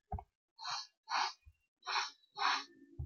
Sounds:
Sniff